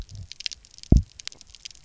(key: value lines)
label: biophony, double pulse
recorder: SoundTrap 300